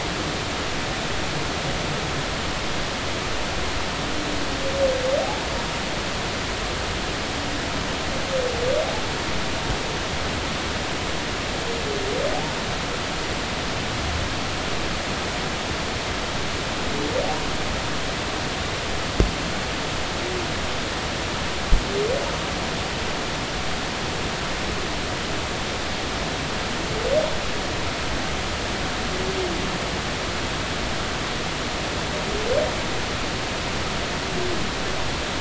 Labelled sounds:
5.2	5.5	humpback whale, 0.80 to 0.96 kHz

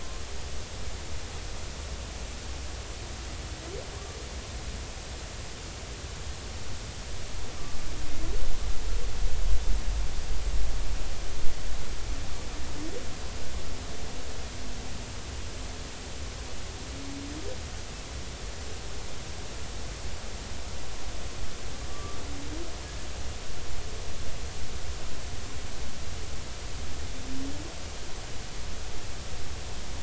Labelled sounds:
21.9	22.2	humpback whale, 1.1 to 1.2 kHz

